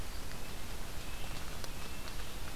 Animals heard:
Red-breasted Nuthatch (Sitta canadensis)

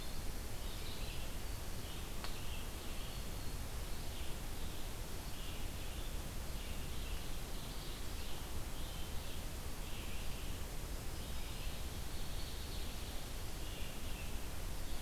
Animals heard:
Red-eyed Vireo (Vireo olivaceus), Black-throated Green Warbler (Setophaga virens), Winter Wren (Troglodytes hiemalis), Ovenbird (Seiurus aurocapilla)

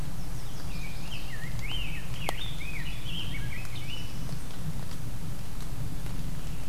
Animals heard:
Chestnut-sided Warbler (Setophaga pensylvanica), Rose-breasted Grosbeak (Pheucticus ludovicianus)

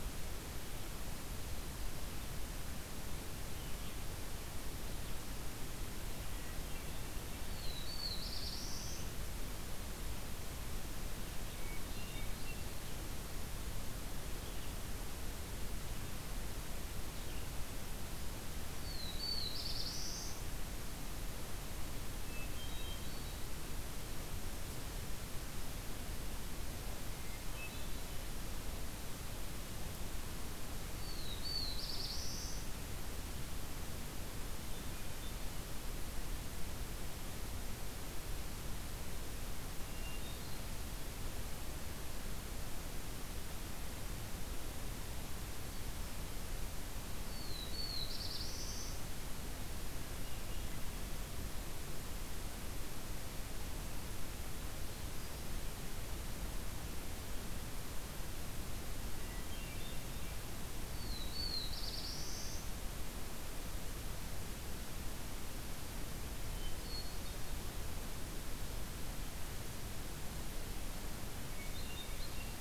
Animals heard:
Red-eyed Vireo (Vireo olivaceus), Hermit Thrush (Catharus guttatus), Black-throated Blue Warbler (Setophaga caerulescens)

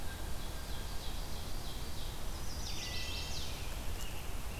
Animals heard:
Wood Thrush (Hylocichla mustelina), Chestnut-sided Warbler (Setophaga pensylvanica), Ovenbird (Seiurus aurocapilla)

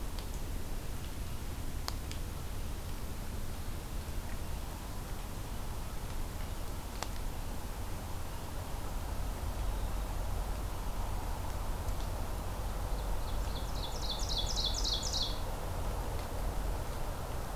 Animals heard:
Ovenbird (Seiurus aurocapilla)

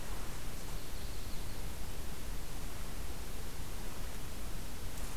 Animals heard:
Yellow-rumped Warbler (Setophaga coronata)

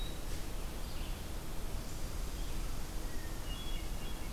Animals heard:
Hermit Thrush (Catharus guttatus), Red-eyed Vireo (Vireo olivaceus)

